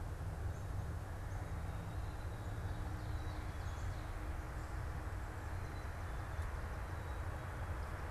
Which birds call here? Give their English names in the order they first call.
Black-capped Chickadee, Swamp Sparrow